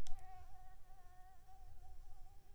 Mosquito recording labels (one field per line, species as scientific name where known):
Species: Anopheles coustani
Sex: female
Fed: unfed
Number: one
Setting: cup